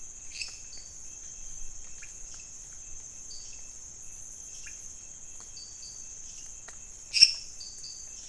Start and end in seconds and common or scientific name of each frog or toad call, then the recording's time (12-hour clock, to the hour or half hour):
0.3	0.7	lesser tree frog
0.7	1.1	dwarf tree frog
1.9	2.2	pointedbelly frog
3.2	3.8	dwarf tree frog
4.5	5.1	pointedbelly frog
5.5	6.2	dwarf tree frog
7.1	7.5	lesser tree frog
7.5	8.2	dwarf tree frog
2am